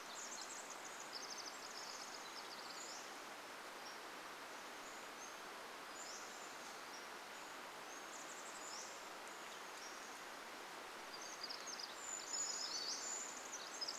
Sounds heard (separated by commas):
Chestnut-backed Chickadee call, Pacific Wren song, Brown Creeper song, Pacific-slope Flycatcher song